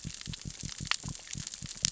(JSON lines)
{"label": "biophony", "recorder": "SoundTrap 600 or HydroMoth"}